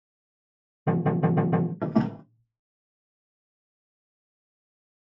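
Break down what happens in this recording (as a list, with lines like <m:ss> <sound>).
0:01 knocking is heard
0:02 a window closes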